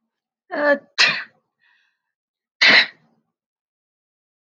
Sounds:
Sneeze